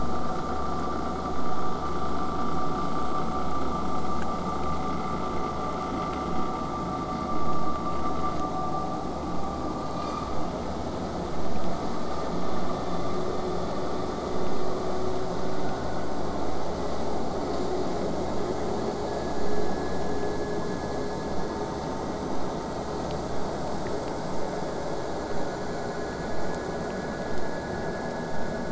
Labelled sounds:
13.3	18.3	vessel noise, 0 to 8.0 kHz

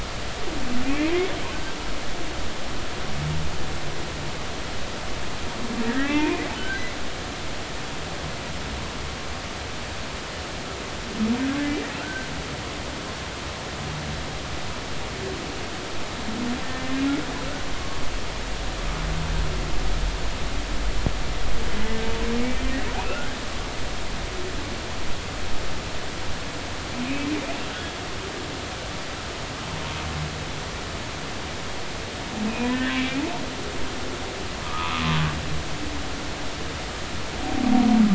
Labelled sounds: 1.5	1.8	humpback whale, 1.5 to 1.6 kHz
5.8	6.8	humpback whale, 0.80 to 2.6 kHz
12.0	12.3	humpback whale, 1.3 to 1.6 kHz
17.7	18.0	humpback whale, 1.1 to 1.2 kHz
22.4	22.7	humpback whale, 2.1 to 2.4 kHz
23.0	23.4	humpback whale, 1.3 to 2.8 kHz
32.7	33.2	humpback whale, 1.5 to 2.6 kHz
34.6	35.0	humpback whale, 0.90 to 1.3 kHz

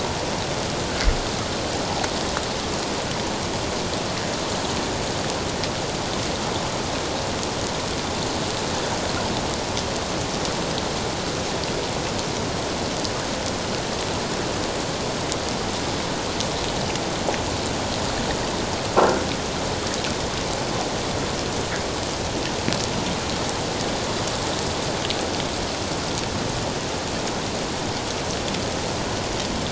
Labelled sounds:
19.0	19.2	croaking sound likely from a nearby submerged object, 1.3 to 1.5 kHz

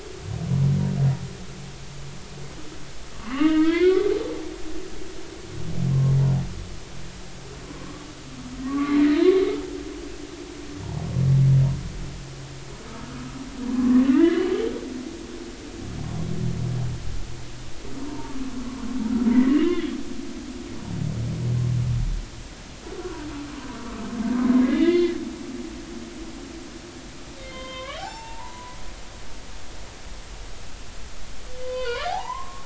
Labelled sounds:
3.1	4.1	humpback whale, 0.90 to 3.5 kHz
7.7	8.1	humpback whale, 0.99 to 1.2 kHz
8.6	9.6	humpback whale, 0.90 to 4.3 kHz
12.9	14.5	humpback whale, 0.99 to 3.0 kHz
18.0	18.3	humpback whale, 0.83 to 1.1 kHz
19.3	19.8	humpback whale, 1.8 to 2.9 kHz
24.5	25.2	humpback whale, 1.8 to 3.6 kHz
27.4	28.8	humpback whale, 0.80 to 5.5 kHz
31.5	32.6	humpback whale, 0.80 to 4.9 kHz

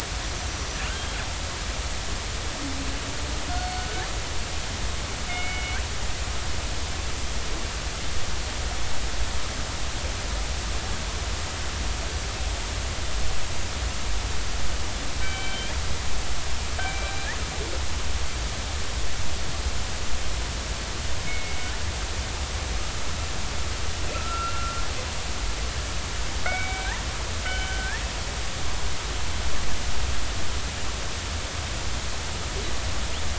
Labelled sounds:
3.5	3.8	killer whale, northern resident, 4.3 to 4.5 kHz
5.3	5.8	killer whale, northern resident, 2.1 to 3.0 kHz
15.2	15.8	killer whale, northern resident, 1.5 to 3.4 kHz
16.8	17.1	killer whale, northern resident, 2.2 to 2.4 kHz
21.2	21.7	killer whale, northern resident, 2.1 to 2.3 kHz
24.1	24.8	killer whale, northern resident, 1.2 to 2.8 kHz
26.5	27.0	killer whale, northern resident, 1.5 to 2.4 kHz
27.5	28.0	killer whale, northern resident, 1.5 to 3.1 kHz

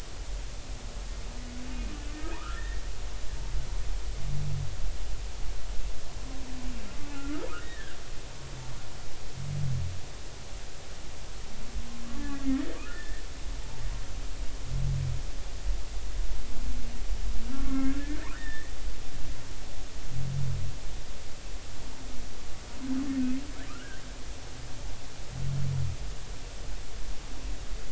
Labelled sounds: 2.0	2.8	humpback whale, 0.83 to 2.0 kHz
7.0	8.0	humpback whale, 1.3 to 2.7 kHz
12.2	13.2	humpback whale, 1.1 to 2.0 kHz
17.5	18.7	humpback whale, 0.99 to 3.7 kHz
23.7	24.0	humpback whale, 1.1 to 1.7 kHz

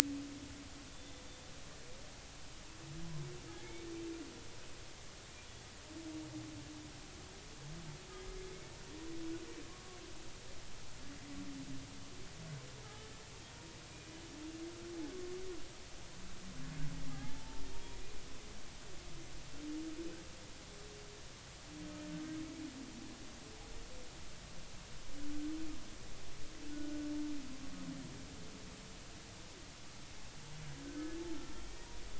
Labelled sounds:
3.5	3.7	humpback whale, 1.6 to 1.8 kHz
9.7	10.0	humpback whale, 1.0 to 1.2 kHz
12.8	13.1	humpback whale, 1.2 to 1.3 kHz
17.1	17.6	humpback whale, 0.80 to 0.96 kHz
26.7	27.0	humpback whale, 1.4 to 1.5 kHz
30.8	31.6	humpback whale, 1.3 to 1.6 kHz

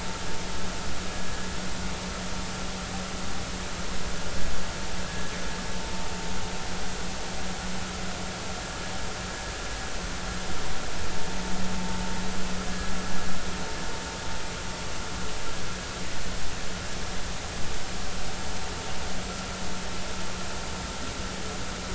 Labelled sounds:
5.0	5.3	vessel noise, 1.5 to 1.8 kHz
12.7	12.9	vessel noise, 1.6 to 1.7 kHz

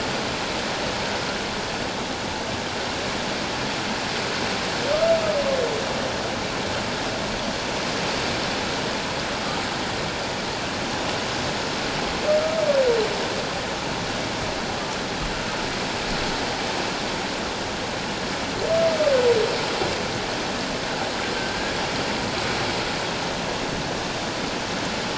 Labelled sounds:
21.3	21.8	humpback whale, 1.5 to 1.8 kHz

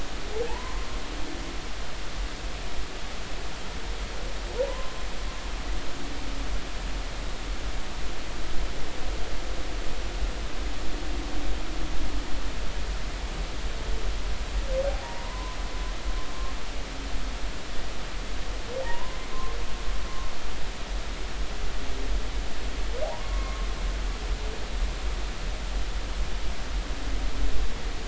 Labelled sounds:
0.5	0.9	humpback whale, 0.80 to 1.1 kHz
4.6	5.0	humpback whale, 0.93 to 1.1 kHz
15.0	15.6	humpback whale, 0.90 to 1.1 kHz
18.8	19.2	humpback whale, 0.80 to 1.1 kHz
23.0	23.7	humpback whale, 0.80 to 1.2 kHz

